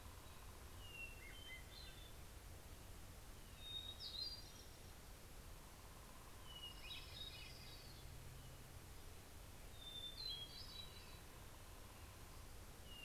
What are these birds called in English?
Hermit Thrush, Orange-crowned Warbler